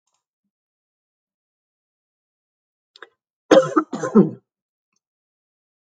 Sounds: Cough